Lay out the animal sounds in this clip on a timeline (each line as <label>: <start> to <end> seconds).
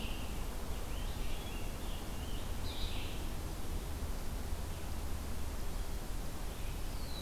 Red-eyed Vireo (Vireo olivaceus): 0.0 to 7.2 seconds
Rose-breasted Grosbeak (Pheucticus ludovicianus): 0.7 to 3.2 seconds